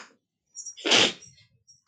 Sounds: Sniff